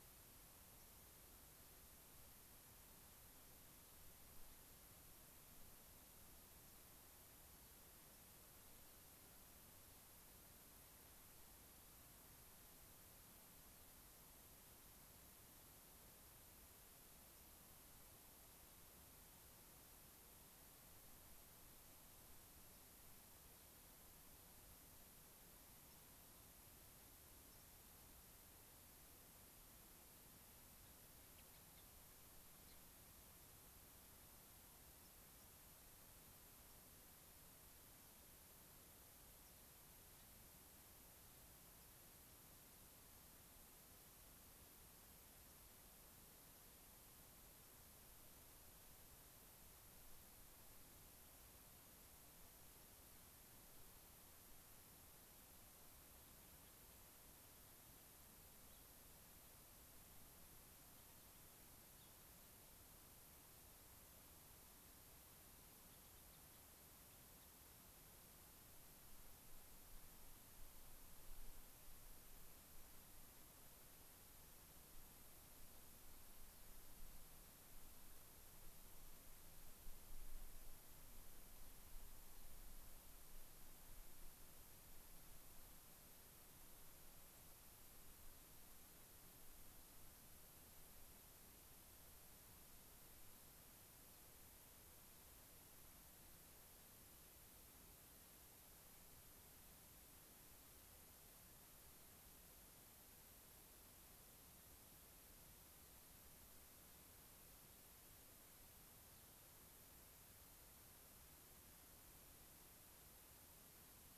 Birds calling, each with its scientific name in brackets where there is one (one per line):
Gray-crowned Rosy-Finch (Leucosticte tephrocotis)
White-crowned Sparrow (Zonotrichia leucophrys)